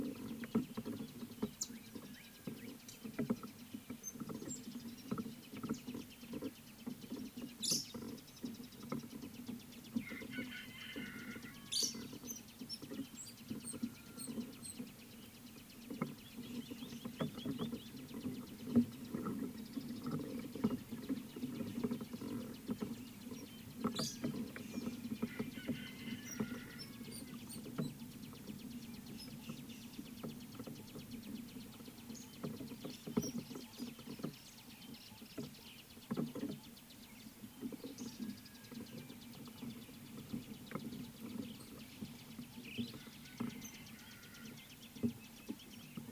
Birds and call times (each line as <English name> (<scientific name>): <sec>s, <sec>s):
Rufous Chatterer (Argya rubiginosa): 4.1s, 12.7s, 27.2s
Fischer's Lovebird (Agapornis fischeri): 7.7s, 11.8s, 24.0s
Superb Starling (Lamprotornis superbus): 42.8s